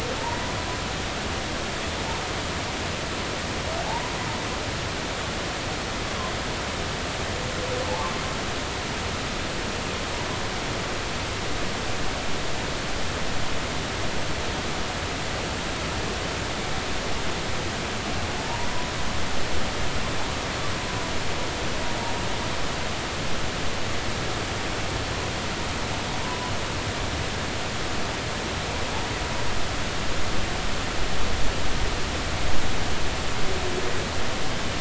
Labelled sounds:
3.9	4.1	humpback whale, 0.80 to 1.0 kHz
7.9	8.2	humpback whale, 0.80 to 1.2 kHz
18.4	18.7	humpback whale, 0.83 to 1.0 kHz
26.2	26.5	humpback whale, 0.90 to 1.1 kHz

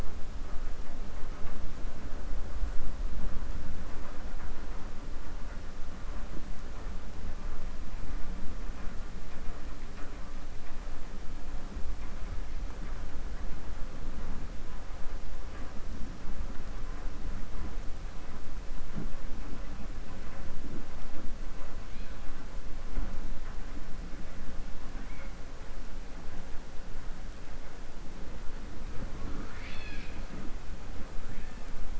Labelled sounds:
24.9	25.3	killer whale, 0.85 to 3.3 kHz

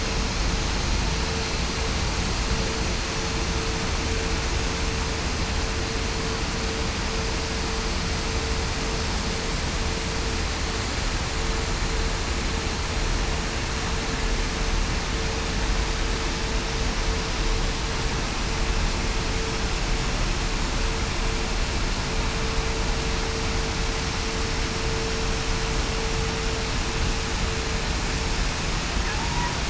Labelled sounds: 29.2	29.5	killer whale, southern resident, 0.87 to 1.0 kHz

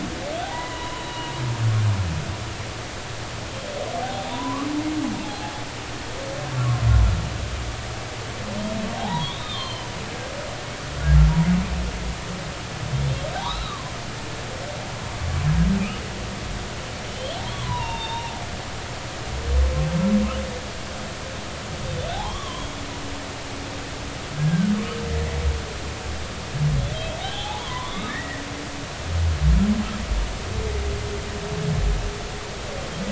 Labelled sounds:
0.4	1.3	humpback whale, 0.80 to 3.0 kHz
4.0	4.7	humpback whale, 0.80 to 1.3 kHz
5.2	5.5	humpback whale, 0.80 to 0.96 kHz
6.5	6.8	humpback whale, 1.0 to 1.3 kHz
9.0	9.9	humpback whale, 0.80 to 3.8 kHz
13.4	13.9	humpback whale, 0.80 to 4.2 kHz
17.1	18.4	humpback whale, 0.80 to 3.9 kHz
22.1	22.7	humpback whale, 0.80 to 3.6 kHz
24.3	24.7	humpback whale, 1.4 to 1.7 kHz
27.2	28.4	humpback whale, 0.80 to 3.6 kHz
28.9	29.1	humpback whale, 3.6 to 3.9 kHz

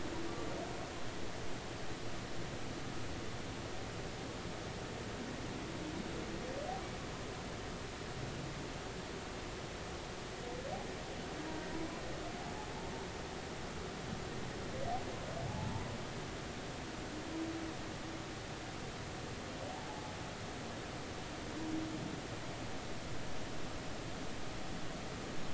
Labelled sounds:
15.5	15.9	humpback whale, 0.80 to 1.0 kHz
19.9	20.1	humpback whale, 0.80 to 0.90 kHz

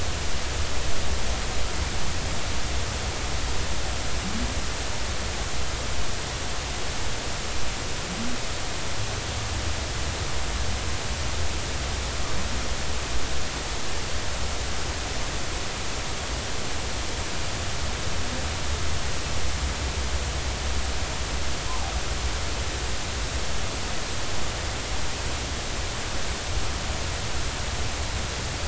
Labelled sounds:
21.7	21.9	humpback whale, 0.80 to 1.1 kHz

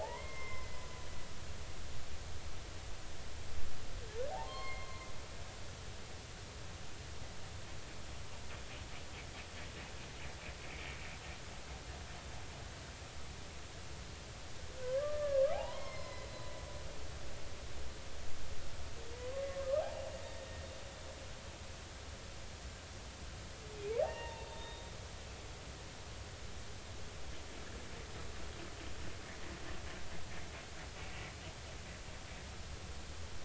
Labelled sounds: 0.0	0.9	humpback whale, 0.80 to 5.4 kHz
4.4	5.0	humpback whale, 0.99 to 4.4 kHz
14.8	16.5	humpback whale, 0.80 to 5.4 kHz
19.8	20.5	humpback whale, 0.80 to 3.8 kHz
24.0	24.9	humpback whale, 0.80 to 3.9 kHz

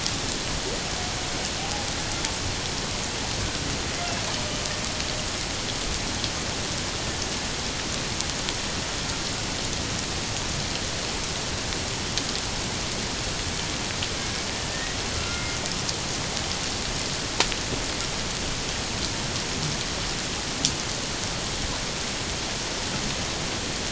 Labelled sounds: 1.6	1.8	humpback whale, 0.78 to 0.88 kHz
14.7	15.6	humpback whale, 1.3 to 2.2 kHz

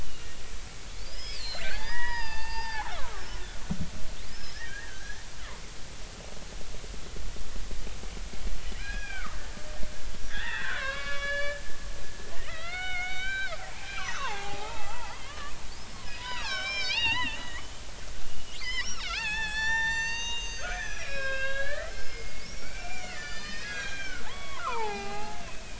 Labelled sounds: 0.0	3.4	killer whale, Bigg's (transient), 0.80 to 5.6 kHz
4.2	5.2	killer whale, Bigg's (transient), 1.5 to 5.4 kHz
8.8	9.4	killer whale, Bigg's (transient), 0.90 to 2.6 kHz
10.3	11.6	killer whale, Bigg's (transient), 0.99 to 5.2 kHz
12.3	17.7	killer whale, Bigg's (transient), 0.80 to 6.4 kHz
18.6	25.7	killer whale, Bigg's (transient), 0.80 to 8.0 kHz

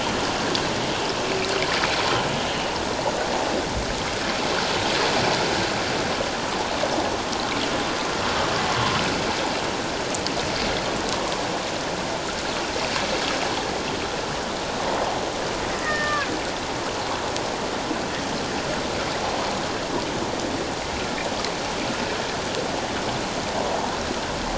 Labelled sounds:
15.8	16.3	humpback whale, 1.0 to 2.0 kHz

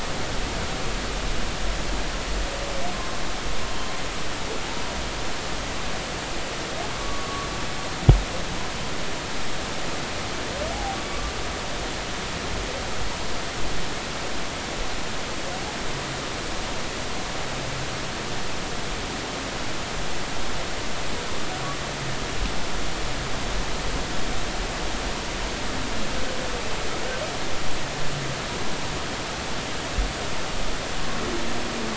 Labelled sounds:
7.0	7.5	humpback whale, 1.1 to 1.2 kHz
10.7	11.0	humpback whale, 0.80 to 0.90 kHz

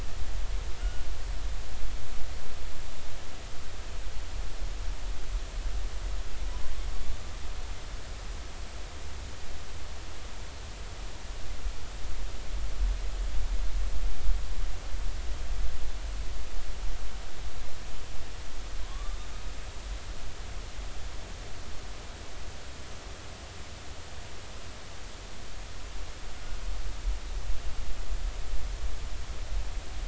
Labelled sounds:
0.8	1.0	killer whale, northern resident, G clan, 1.3 to 3.0 kHz
18.8	19.2	killer whale, northern resident, A clan, AA subclan, 0.96 to 1.2 kHz

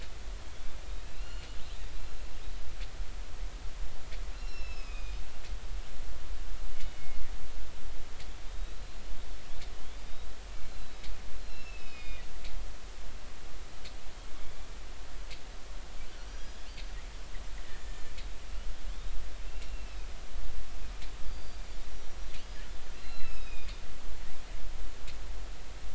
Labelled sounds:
1.0	1.5	killer whale, northern resident, A clan, AB subclan, 2.5 to 4.4 kHz
4.3	5.2	killer whale, northern resident, A clan, AA subclan, A05 pod, call N04, 2.3 to 5.5 kHz
6.7	7.3	killer whale, northern resident, G clan, call N24ii, 2.0 to 3.0 kHz
10.1	10.4	killer whale, northern resident, 3.6 to 4.0 kHz
10.6	12.2	killer whale, northern resident, A clan, AA subclan, A05 pod, call N04, 2.4 to 5.5 kHz
11.9	12.3	killer whale, northern resident, G clan, call N24ii, 1.9 to 4.4 kHz
14.4	14.7	killer whale, northern resident, A clan, 2.1 to 2.4 kHz
16.1	16.7	killer whale, northern resident, A clan, 4.9 to 5.9 kHz
17.6	18.1	killer whale, northern resident, A clan, AB subclan, call N01iii, 1.7 to 7.2 kHz
19.7	20.0	killer whale, northern resident, A clan, AA subclan, call N04, 2.6 to 2.8 kHz
19.9	20.2	killer whale, northern resident, A clan, call N07, 3.3 to 3.9 kHz
21.3	22.2	killer whale, northern resident, G clan, call N23i, 4.6 to 5.9 kHz
23.0	23.8	killer whale, northern resident, A clan, AA subclan, A05 pod, call N04, 2.4 to 6.7 kHz

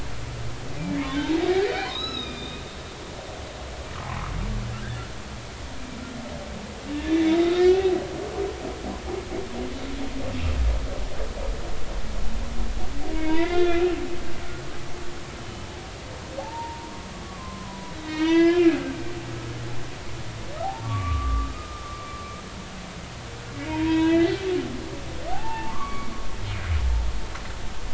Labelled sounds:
1.1	2.6	humpback whale, 0.96 to 5.4 kHz
7.7	7.9	humpback whale, 2.5 to 2.8 kHz
13.1	13.9	humpback whale, 0.90 to 3.9 kHz
15.4	15.7	humpback whale, 2.9 to 3.1 kHz
17.2	18.9	humpback whale, 0.80 to 4.7 kHz
20.6	21.8	humpback whale, 0.80 to 1.3 kHz
23.7	24.4	humpback whale, 0.83 to 3.9 kHz
25.3	26.1	humpback whale, 0.80 to 2.3 kHz

